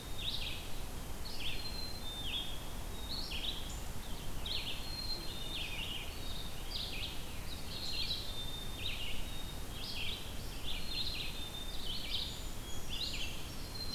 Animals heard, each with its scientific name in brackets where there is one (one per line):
Black-capped Chickadee (Poecile atricapillus)
Red-eyed Vireo (Vireo olivaceus)
Blackburnian Warbler (Setophaga fusca)